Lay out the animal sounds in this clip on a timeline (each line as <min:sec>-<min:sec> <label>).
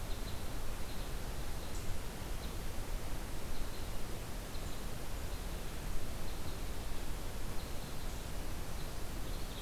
0:00.0-0:09.6 Red Crossbill (Loxia curvirostra)